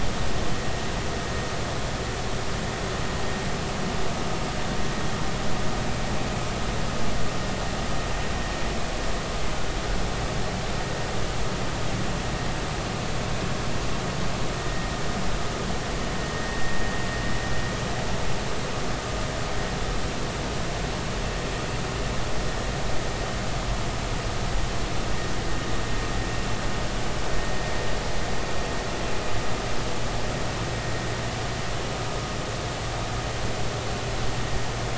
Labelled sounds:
14.6	14.9	vessel noise, 1.8 to 2.0 kHz

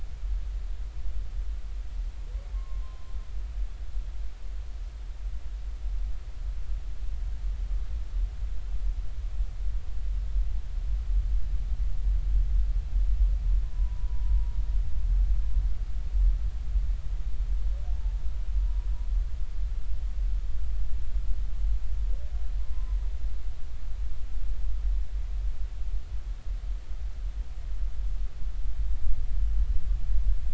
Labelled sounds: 2.5	3.1	humpback whale, 0.99 to 1.1 kHz
13.6	14.6	humpback whale, 0.90 to 1.1 kHz
22.7	23.0	humpback whale, 0.93 to 1.1 kHz

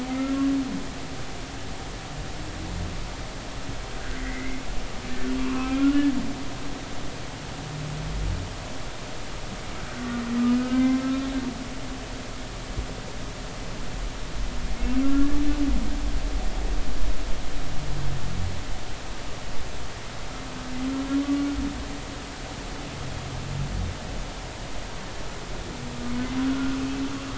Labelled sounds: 4.1	4.6	humpback whale, 1.8 to 2.3 kHz
5.4	6.0	humpback whale, 0.99 to 2.8 kHz
10.6	11.3	humpback whale, 0.99 to 2.2 kHz
15.0	15.3	humpback whale, 1.3 to 1.4 kHz
26.4	26.8	humpback whale, 1.3 to 1.5 kHz

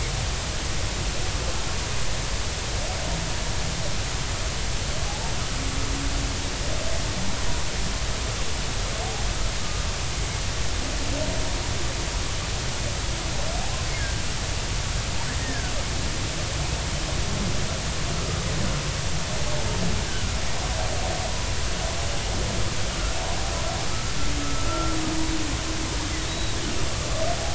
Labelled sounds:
9.6	9.8	humpback whale, 1.1 to 1.2 kHz
14.0	14.2	humpback whale, 1.5 to 1.9 kHz
15.4	15.7	humpback whale, 1.4 to 1.9 kHz
20.1	20.4	humpback whale, 1.3 to 1.6 kHz
24.4	24.9	humpback whale, 1.2 to 1.4 kHz
26.3	26.6	humpback whale, 3.7 to 4.0 kHz

